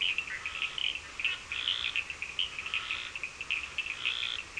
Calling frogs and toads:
Scinax perereca, Cochran's lime tree frog (Sphaenorhynchus surdus)
Brazil, 10:30pm

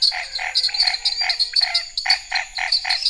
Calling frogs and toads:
Chaco tree frog (Boana raniceps), dwarf tree frog (Dendropsophus nanus), menwig frog (Physalaemus albonotatus), Scinax fuscovarius, pointedbelly frog (Leptodactylus podicipinus)
Brazil, 8:45pm

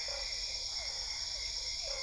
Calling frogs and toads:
Boana albopunctata, Physalaemus cuvieri
Brazil, 8:45pm

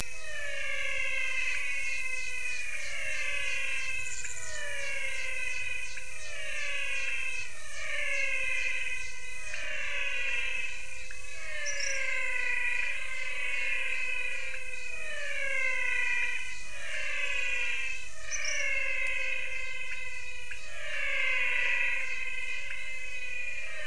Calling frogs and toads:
menwig frog (Physalaemus albonotatus), pointedbelly frog (Leptodactylus podicipinus)
Brazil, 6:30pm

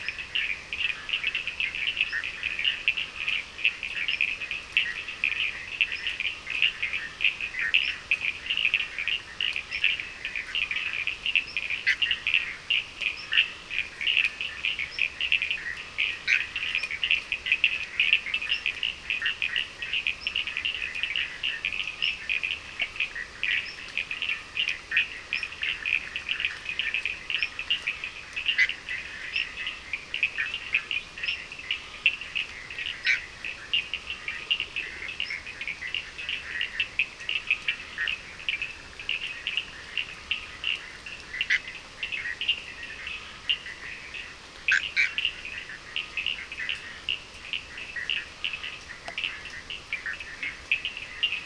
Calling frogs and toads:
Bischoff's tree frog (Boana bischoffi), Cochran's lime tree frog (Sphaenorhynchus surdus)
Brazil, 9:30pm

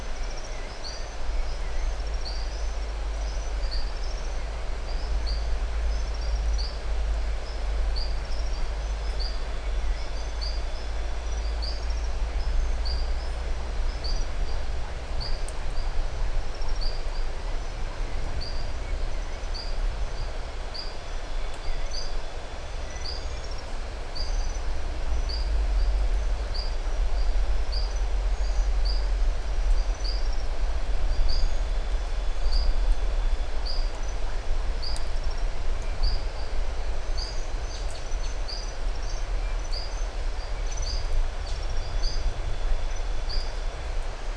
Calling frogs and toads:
marbled tropical bullfrog (Adenomera marmorata)
Brazil, 6:15pm

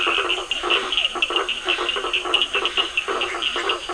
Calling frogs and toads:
blacksmith tree frog (Boana faber), Physalaemus cuvieri, Scinax perereca, Cochran's lime tree frog (Sphaenorhynchus surdus)
Brazil, 8:30pm

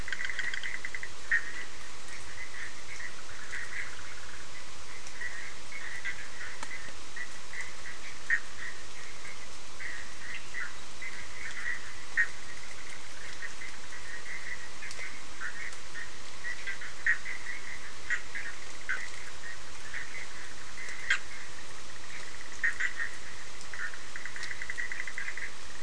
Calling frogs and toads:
Bischoff's tree frog (Boana bischoffi)
Brazil, 10:30pm

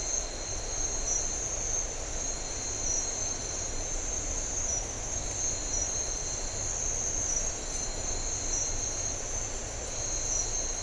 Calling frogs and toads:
none
Brazil, 7:00pm

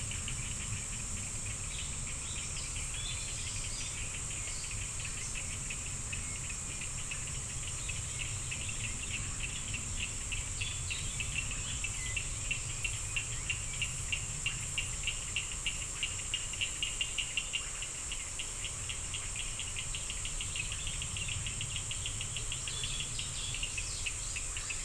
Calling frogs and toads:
Cochran's lime tree frog (Sphaenorhynchus surdus)
Brazil, 7:15pm

